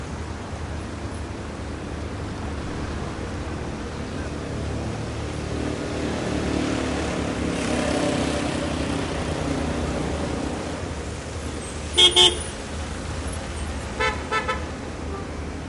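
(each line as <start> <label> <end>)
0.0 A motorcycle engine approaches while driving on a wet road. 11.9
11.9 A car horn sounds twice. 12.4
12.4 An engine is running. 14.0
12.4 Brakes squeak. 14.0
14.0 Three rhythmic beeps. 14.6
14.6 A motorcycle engine running on a wet road. 15.7
15.1 A car beeps. 15.3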